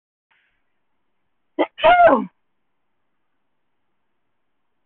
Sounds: Sneeze